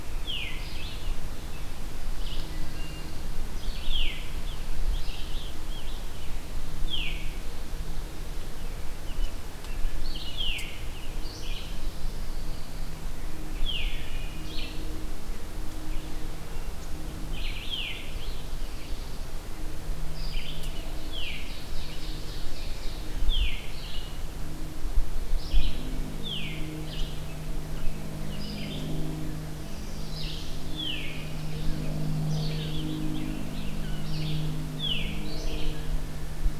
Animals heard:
Red-eyed Vireo (Vireo olivaceus)
Veery (Catharus fuscescens)
Pine Warbler (Setophaga pinus)
Scarlet Tanager (Piranga olivacea)
Wood Thrush (Hylocichla mustelina)
American Robin (Turdus migratorius)
Black-throated Blue Warbler (Setophaga caerulescens)
Ovenbird (Seiurus aurocapilla)

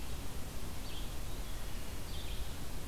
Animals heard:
Red-eyed Vireo (Vireo olivaceus)

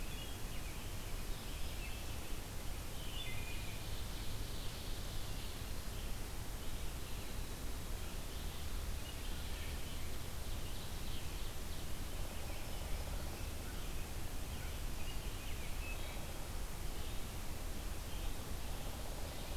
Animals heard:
Red-eyed Vireo (Vireo olivaceus)
Black-throated Green Warbler (Setophaga virens)
Wood Thrush (Hylocichla mustelina)
American Robin (Turdus migratorius)
Ovenbird (Seiurus aurocapilla)

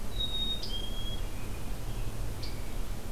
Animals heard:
Black-capped Chickadee (Poecile atricapillus)
American Robin (Turdus migratorius)
Scarlet Tanager (Piranga olivacea)

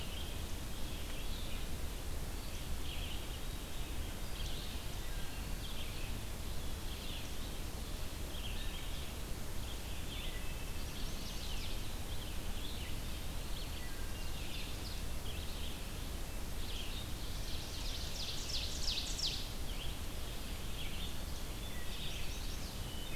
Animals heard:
Ovenbird (Seiurus aurocapilla)
Red-eyed Vireo (Vireo olivaceus)
Wood Thrush (Hylocichla mustelina)
Chestnut-sided Warbler (Setophaga pensylvanica)
Eastern Wood-Pewee (Contopus virens)

